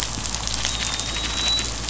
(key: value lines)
label: biophony, dolphin
recorder: SoundTrap 500